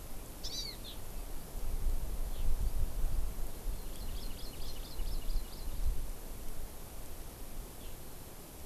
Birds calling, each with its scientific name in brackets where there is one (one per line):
Hawaii Amakihi (Chlorodrepanis virens)